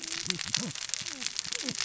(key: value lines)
label: biophony, cascading saw
recorder: SoundTrap 600 or HydroMoth